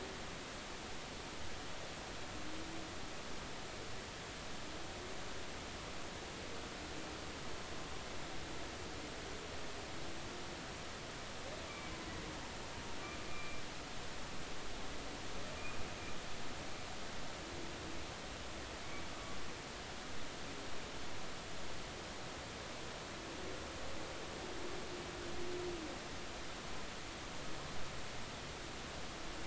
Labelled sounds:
13.2	13.6	humpback whale, 2.3 to 2.5 kHz

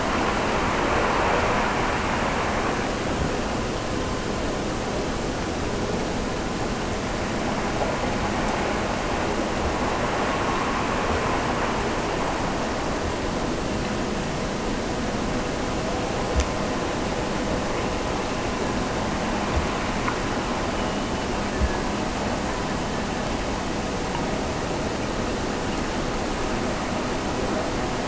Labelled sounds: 20.7	22.0	killer whale, Bigg's (transient), Gulf of Alaska transient, 1.6 to 3.1 kHz

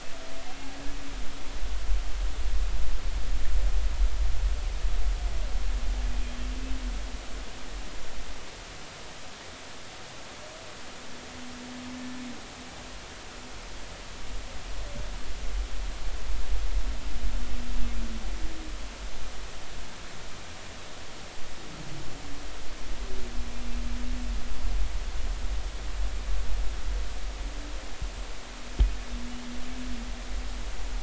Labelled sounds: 0.5	0.7	humpback whale, 2.6 to 2.8 kHz

